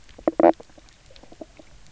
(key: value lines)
label: biophony, knock croak
recorder: SoundTrap 300